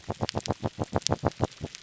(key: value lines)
label: biophony
recorder: SoundTrap 300